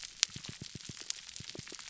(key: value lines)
label: biophony, pulse
recorder: SoundTrap 300